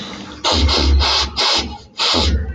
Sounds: Sniff